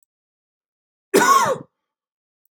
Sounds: Cough